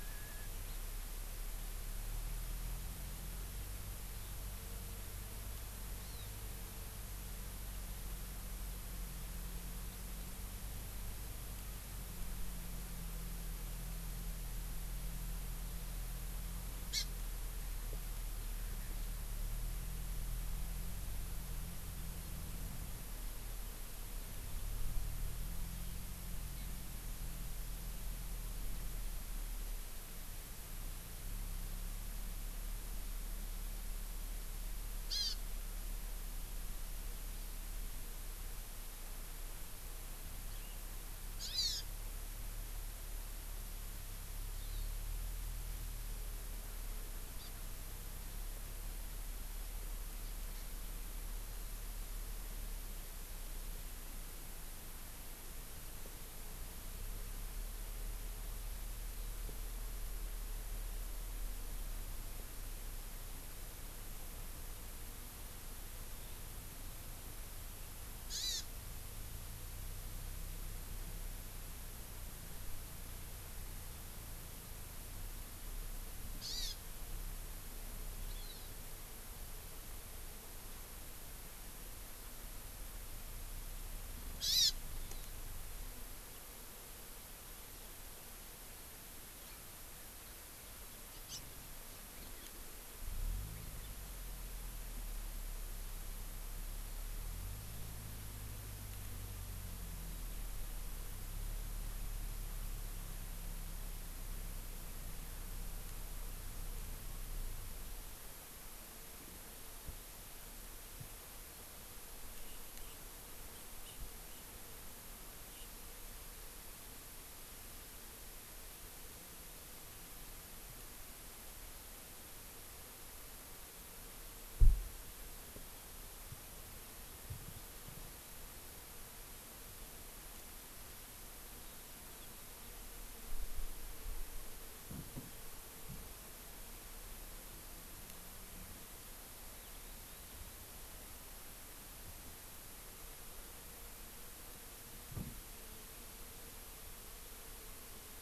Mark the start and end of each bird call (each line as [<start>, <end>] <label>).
[0.60, 0.80] Hawaii Amakihi (Chlorodrepanis virens)
[6.00, 6.30] Hawaii Amakihi (Chlorodrepanis virens)
[16.90, 17.10] Hawaii Amakihi (Chlorodrepanis virens)
[35.10, 35.40] Hawaii Amakihi (Chlorodrepanis virens)
[40.50, 40.80] Hawaii Amakihi (Chlorodrepanis virens)
[41.30, 41.90] Hawaii Amakihi (Chlorodrepanis virens)
[44.60, 44.90] Hawaii Amakihi (Chlorodrepanis virens)
[47.40, 47.50] Hawaii Amakihi (Chlorodrepanis virens)
[68.30, 68.70] Hawaii Amakihi (Chlorodrepanis virens)
[76.30, 76.80] Hawaii Amakihi (Chlorodrepanis virens)
[78.30, 78.70] Hawaii Amakihi (Chlorodrepanis virens)
[84.40, 84.80] Hawaii Amakihi (Chlorodrepanis virens)
[91.20, 91.40] Hawaii Amakihi (Chlorodrepanis virens)
[113.50, 114.00] Hawaii Amakihi (Chlorodrepanis virens)
[115.50, 115.70] Hawaii Amakihi (Chlorodrepanis virens)